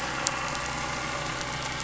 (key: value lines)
label: anthrophony, boat engine
recorder: SoundTrap 500